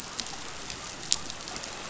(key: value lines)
label: biophony
recorder: SoundTrap 500